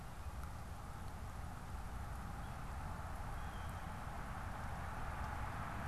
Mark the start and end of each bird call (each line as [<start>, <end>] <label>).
[3.21, 3.91] Blue Jay (Cyanocitta cristata)